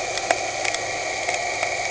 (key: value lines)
label: anthrophony, boat engine
recorder: HydroMoth